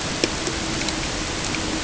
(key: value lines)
label: ambient
recorder: HydroMoth